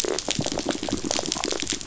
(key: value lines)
label: biophony
recorder: SoundTrap 500